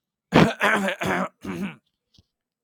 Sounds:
Throat clearing